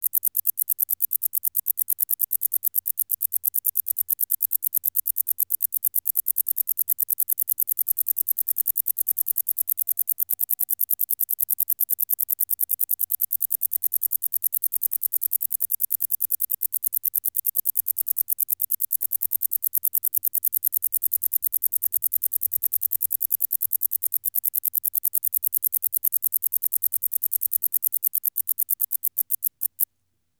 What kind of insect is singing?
orthopteran